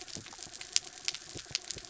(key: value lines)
label: anthrophony, mechanical
recorder: SoundTrap 300